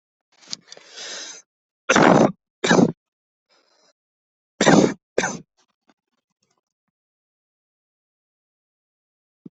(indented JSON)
{
  "expert_labels": [
    {
      "quality": "ok",
      "cough_type": "dry",
      "dyspnea": false,
      "wheezing": false,
      "stridor": false,
      "choking": false,
      "congestion": false,
      "nothing": true,
      "diagnosis": "upper respiratory tract infection",
      "severity": "unknown"
    }
  ],
  "age": 20,
  "gender": "male",
  "respiratory_condition": false,
  "fever_muscle_pain": false,
  "status": "healthy"
}